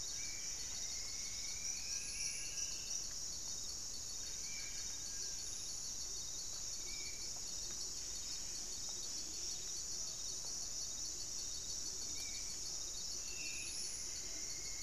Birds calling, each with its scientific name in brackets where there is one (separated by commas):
Striped Woodcreeper (Xiphorhynchus obsoletus), Buff-breasted Wren (Cantorchilus leucotis), Horned Screamer (Anhima cornuta), Spot-winged Antshrike (Pygiptila stellaris), Black-spotted Bare-eye (Phlegopsis nigromaculata), Long-billed Woodcreeper (Nasica longirostris)